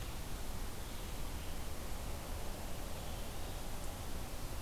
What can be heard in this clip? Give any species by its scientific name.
forest ambience